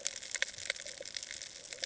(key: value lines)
label: ambient
recorder: HydroMoth